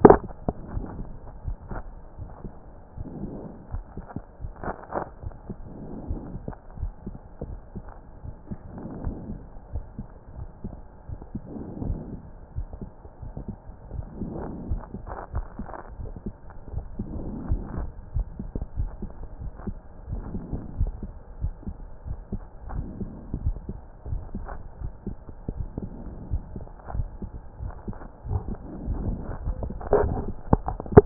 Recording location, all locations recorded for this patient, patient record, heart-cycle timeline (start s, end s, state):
aortic valve (AV)
aortic valve (AV)+pulmonary valve (PV)+tricuspid valve (TV)+mitral valve (MV)
#Age: Child
#Sex: Male
#Height: 146.0 cm
#Weight: 34.8 kg
#Pregnancy status: False
#Murmur: Absent
#Murmur locations: nan
#Most audible location: nan
#Systolic murmur timing: nan
#Systolic murmur shape: nan
#Systolic murmur grading: nan
#Systolic murmur pitch: nan
#Systolic murmur quality: nan
#Diastolic murmur timing: nan
#Diastolic murmur shape: nan
#Diastolic murmur grading: nan
#Diastolic murmur pitch: nan
#Diastolic murmur quality: nan
#Outcome: Normal
#Campaign: 2014 screening campaign
0.00	6.67	unannotated
6.67	6.80	diastole
6.80	6.92	S1
6.92	7.06	systole
7.06	7.14	S2
7.14	7.46	diastole
7.46	7.58	S1
7.58	7.76	systole
7.76	7.84	S2
7.84	8.24	diastole
8.24	8.34	S1
8.34	8.50	systole
8.50	8.58	S2
8.58	9.02	diastole
9.02	9.16	S1
9.16	9.28	systole
9.28	9.38	S2
9.38	9.74	diastole
9.74	9.84	S1
9.84	9.98	systole
9.98	10.08	S2
10.08	10.36	diastole
10.36	10.48	S1
10.48	10.64	systole
10.64	10.74	S2
10.74	11.10	diastole
11.10	11.20	S1
11.20	11.34	systole
11.34	11.44	S2
11.44	11.84	diastole
11.84	31.06	unannotated